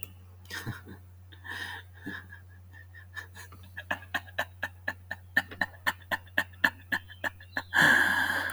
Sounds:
Laughter